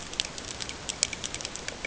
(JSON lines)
{"label": "ambient", "recorder": "HydroMoth"}